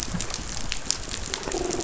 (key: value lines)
label: biophony
recorder: SoundTrap 500